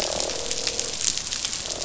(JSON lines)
{"label": "biophony, croak", "recorder": "SoundTrap 500"}